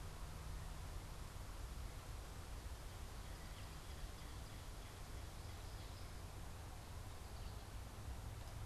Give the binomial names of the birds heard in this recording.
Cardinalis cardinalis, Spinus tristis